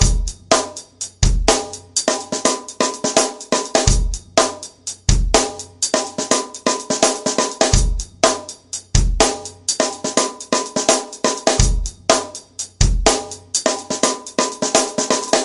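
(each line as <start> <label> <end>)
0.0 A repetitive, rhythmic pattern is played on a drum kit. 15.4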